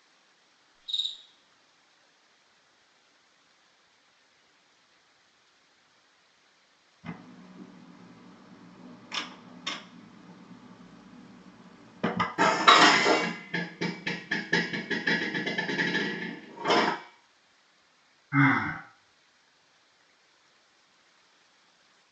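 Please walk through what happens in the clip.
At the start, the sound of a cricket is heard. Then, about 7 seconds in, a camera can be heard. After that, about 12 seconds in, there is the sound of dishes. Finally, about 18 seconds in, someone sighs. A faint, unchanging background noise remains.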